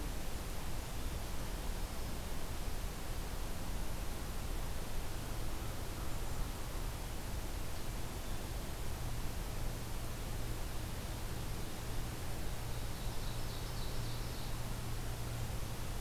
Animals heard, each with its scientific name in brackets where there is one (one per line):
Ovenbird (Seiurus aurocapilla)